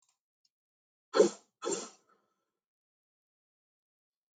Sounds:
Sniff